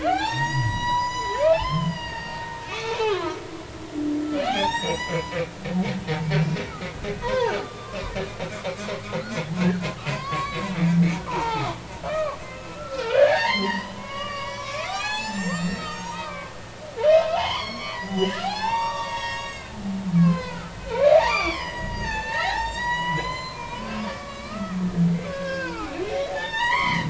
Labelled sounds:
0.0	3.3	humpback whale, 0.80 to 8.0 kHz
4.0	5.4	humpback whale, 0.80 to 7.9 kHz
7.2	8.0	humpback whale, 0.80 to 1.7 kHz
9.6	10.8	humpback whale, 0.83 to 4.6 kHz
11.2	11.7	humpback whale, 0.80 to 1.4 kHz
12.1	16.6	humpback whale, 0.80 to 8.0 kHz
17.3	19.8	humpback whale, 0.80 to 6.7 kHz
20.1	24.8	humpback whale, 0.80 to 8.0 kHz
25.2	27.0	humpback whale, 0.80 to 6.2 kHz

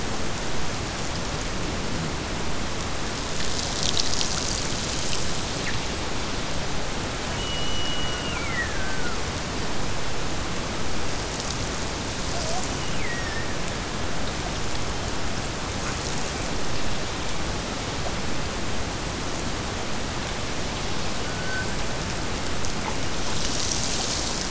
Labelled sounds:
7.3	9.3	killer whale, Bigg's (transient), Gulf of Alaska transient, 1.1 to 3.0 kHz
12.6	13.6	killer whale, Bigg's (transient), Gulf of Alaska transient, 1.6 to 3.1 kHz

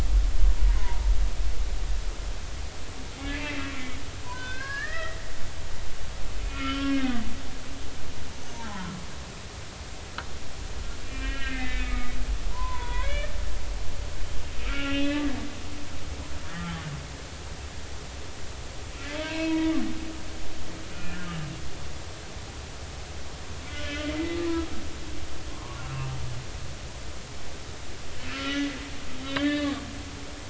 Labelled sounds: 0.8	1.0	humpback whale, 0.86 to 1.1 kHz
3.3	4.0	humpback whale, 1.9 to 2.7 kHz
4.2	5.2	humpback whale, 0.93 to 4.2 kHz
6.4	7.2	humpback whale, 1.2 to 3.2 kHz
8.5	8.9	humpback whale, 0.80 to 1.1 kHz
11.0	12.1	humpback whale, 1.2 to 3.0 kHz
12.5	13.3	humpback whale, 0.86 to 3.6 kHz
14.6	15.2	humpback whale, 1.2 to 3.9 kHz
19.2	19.7	humpback whale, 0.90 to 4.3 kHz
20.2	21.3	humpback whale, 0.90 to 2.5 kHz
23.7	23.9	humpback whale, 1.4 to 1.5 kHz
25.5	25.8	humpback whale, 0.93 to 1.2 kHz
28.3	28.8	humpback whale, 1.2 to 3.1 kHz
29.2	29.7	humpback whale, 1.1 to 4.4 kHz

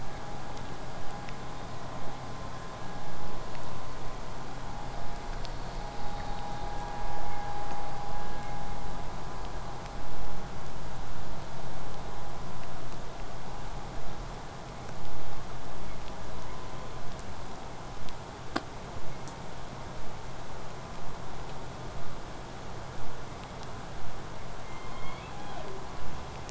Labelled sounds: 24.7	25.9	killer whale, southern resident, J pod, call S01, 0.21 to 4.9 kHz

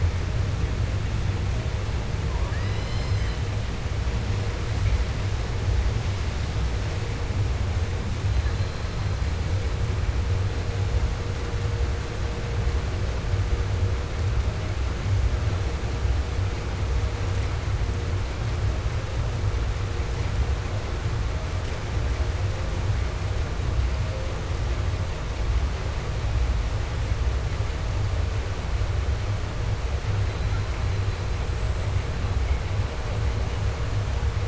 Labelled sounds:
2.2	3.7	killer whale, southern resident, J pod, call S44, 0.10 to 8.0 kHz

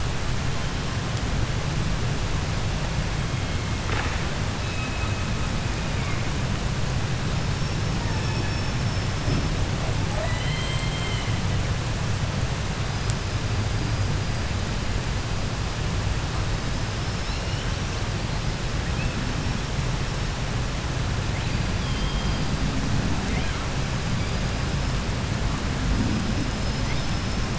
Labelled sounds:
0.4	1.4	killer whale, 0.83 to 6.0 kHz
2.4	3.8	killer whale, 1.8 to 4.2 kHz
4.4	6.3	killer whale, southern resident, call S16, 0.57 to 5.7 kHz
7.9	8.9	killer whale, 0.36 to 3.0 kHz
9.9	11.7	killer whale, 0.10 to 8.0 kHz
12.9	15.9	killer whale, 4.4 to 5.5 kHz
16.3	18.1	killer whale, 1.1 to 6.3 kHz
18.4	20.6	killer whale, 1.3 to 8.0 kHz
21.1	25.2	killer whale, 0.55 to 8.0 kHz
25.7	27.5	killer whale, 1.3 to 6.1 kHz

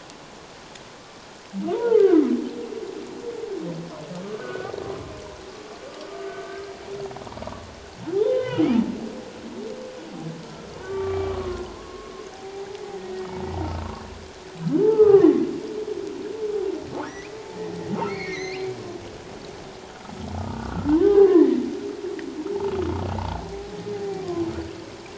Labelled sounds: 1.7	2.2	humpback whale, 0.84 to 1.7 kHz
4.2	4.7	humpback whale, 1.1 to 1.6 kHz
6.3	6.6	humpback whale, 1.5 to 1.6 kHz
8.1	8.7	humpback whale, 0.78 to 3.2 kHz
10.8	12.7	humpback whale, 0.78 to 2.4 kHz
13.6	13.8	humpback whale, 1.2 to 1.4 kHz
14.9	15.3	humpback whale, 0.97 to 1.4 kHz
18.1	18.8	humpback whale, 1.8 to 6.4 kHz
20.4	21.6	humpback whale, 0.78 to 2.0 kHz
23.2	23.4	humpback whale, 0.78 to 1.0 kHz
23.9	24.5	humpback whale, 0.78 to 1.2 kHz

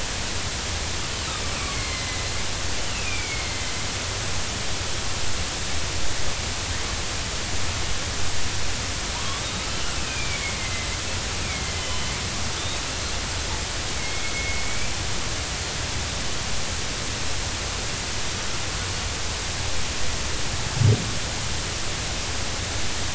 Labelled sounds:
1.7	3.7	killer whale, northern resident, 2.0 to 4.5 kHz
9.1	10.9	killer whale, northern resident, 0.90 to 3.1 kHz
11.4	11.8	killer whale, northern resident, 2.0 to 2.5 kHz
12.6	13.1	killer whale, northern resident, 3.0 to 3.9 kHz
14.0	14.9	killer whale, northern resident, 2.1 to 2.4 kHz

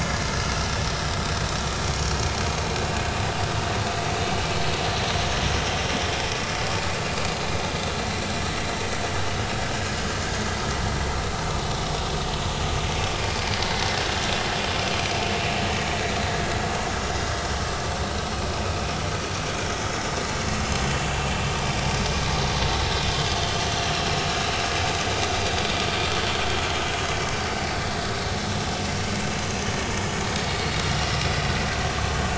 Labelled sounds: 20.5	20.9	vessel noise, 2.6 to 6.2 kHz
21.4	21.7	vessel noise, 5.8 to 6.0 kHz
22.6	22.9	vessel noise, 4.9 to 5.1 kHz
30.9	31.2	vessel noise, 1.8 to 2.0 kHz

